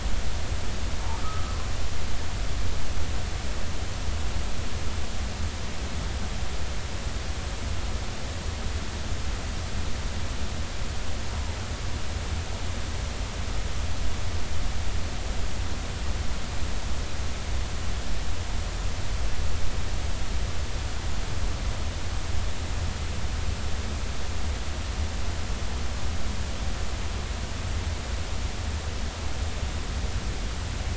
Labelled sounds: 1.2	1.5	humpback whale, 1.2 to 1.3 kHz

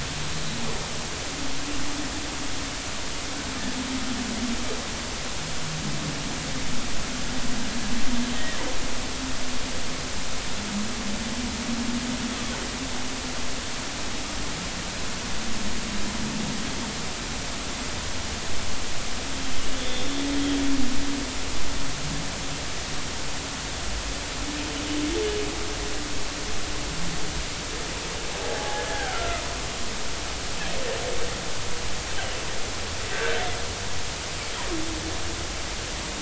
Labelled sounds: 8.3	8.6	humpback whale, 1.7 to 2.0 kHz
19.8	20.1	humpback whale, 3.4 to 3.7 kHz
28.4	29.4	humpback whale, 0.80 to 1.8 kHz
33.1	33.4	humpback whale, 1.5 to 1.7 kHz

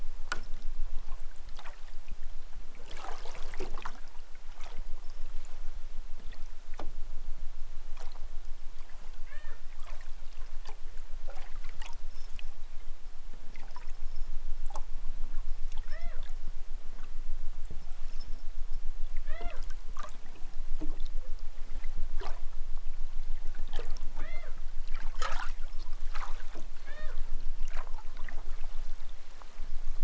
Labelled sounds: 9.2	9.6	killer whale, southern Alaska resident, 0.14 to 5.0 kHz
15.8	16.3	killer whale, southern Alaska resident, 0.28 to 4.7 kHz
19.1	19.6	killer whale, southern Alaska resident, 0.23 to 4.8 kHz
24.0	24.6	killer whale, southern Alaska resident, 0.09 to 5.8 kHz
26.8	27.2	killer whale, southern Alaska resident, 0.09 to 5.5 kHz

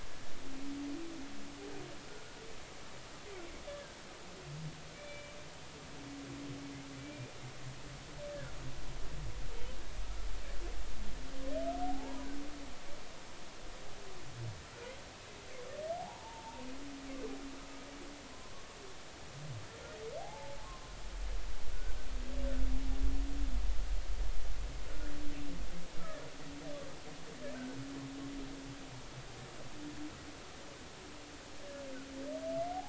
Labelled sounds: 2.1	2.3	humpback whale, 1.4 to 1.5 kHz
3.7	4.0	humpback whale, 1.5 to 1.8 kHz
4.9	5.3	humpback whale, 2.2 to 3.0 kHz
7.0	7.3	humpback whale, 2.3 to 2.5 kHz
11.8	12.3	humpback whale, 0.80 to 1.1 kHz
16.0	16.6	humpback whale, 0.80 to 1.0 kHz
20.2	20.9	humpback whale, 0.80 to 1.1 kHz

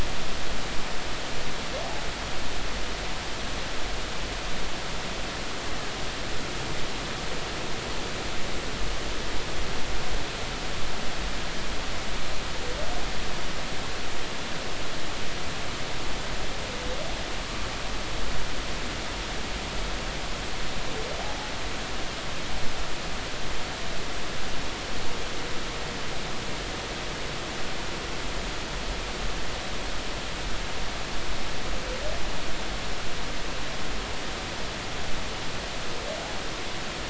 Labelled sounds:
21.2	21.5	humpback whale, 0.80 to 0.90 kHz

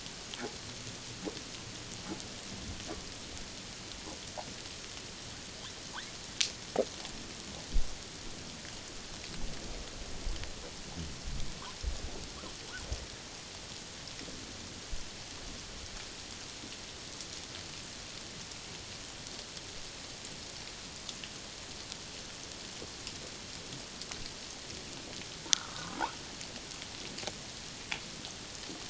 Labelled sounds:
25.5	26.0	humpback whale, 0.97 to 1.6 kHz

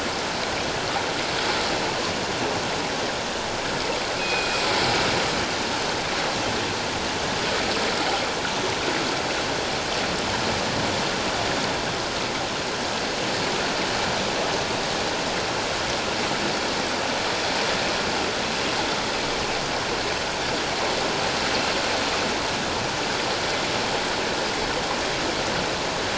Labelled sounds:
4.2	4.6	killer whale, northern resident, G clan, call N24ii, 2.3 to 5.1 kHz

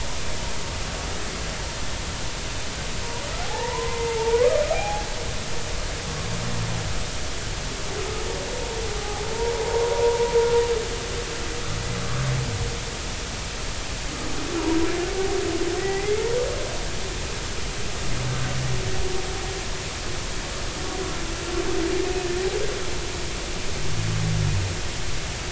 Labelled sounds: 3.5	5.0	humpback whale, 0.80 to 2.1 kHz
6.1	6.3	humpback whale, 1.0 to 1.2 kHz
9.3	10.3	humpback whale, 0.83 to 1.1 kHz
15.8	16.2	humpback whale, 1.8 to 2.2 kHz

